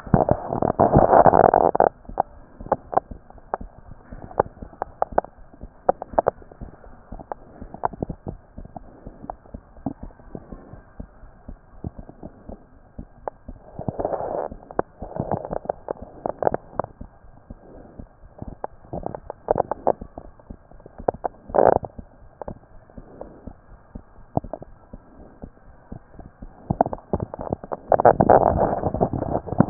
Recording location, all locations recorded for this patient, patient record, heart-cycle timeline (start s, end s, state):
aortic valve (AV)
aortic valve (AV)+mitral valve (MV)
#Age: Child
#Sex: Female
#Height: 99.0 cm
#Weight: 17.6 kg
#Pregnancy status: False
#Murmur: Absent
#Murmur locations: nan
#Most audible location: nan
#Systolic murmur timing: nan
#Systolic murmur shape: nan
#Systolic murmur grading: nan
#Systolic murmur pitch: nan
#Systolic murmur quality: nan
#Diastolic murmur timing: nan
#Diastolic murmur shape: nan
#Diastolic murmur grading: nan
#Diastolic murmur pitch: nan
#Diastolic murmur quality: nan
#Outcome: Abnormal
#Campaign: 2014 screening campaign
0.00	3.01	unannotated
3.01	3.11	diastole
3.11	3.17	S1
3.17	3.35	systole
3.35	3.42	S2
3.42	3.60	diastole
3.60	3.70	S1
3.70	3.86	systole
3.86	3.96	S2
3.96	4.12	diastole
4.12	4.22	S1
4.22	4.38	systole
4.38	4.48	S2
4.48	4.62	diastole
4.62	4.70	S1
4.70	4.82	systole
4.82	4.92	S2
4.92	5.12	diastole
5.12	5.22	S1
5.22	5.36	systole
5.36	5.46	S2
5.46	5.62	diastole
5.62	5.72	S1
5.72	5.86	systole
5.86	5.96	S2
5.96	6.14	diastole
6.14	6.24	S1
6.24	6.36	systole
6.36	6.46	S2
6.46	6.62	diastole
6.62	6.72	S1
6.72	6.84	systole
6.84	6.94	S2
6.94	7.12	diastole
7.12	29.70	unannotated